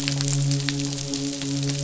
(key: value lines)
label: biophony, midshipman
recorder: SoundTrap 500